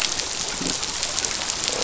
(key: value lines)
label: biophony, croak
recorder: SoundTrap 500